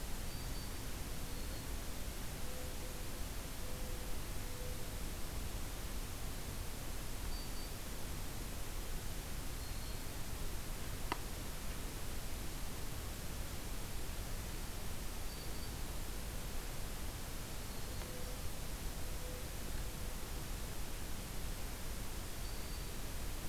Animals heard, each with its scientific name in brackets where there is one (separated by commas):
Black-throated Green Warbler (Setophaga virens), Mourning Dove (Zenaida macroura)